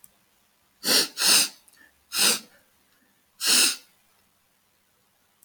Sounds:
Sigh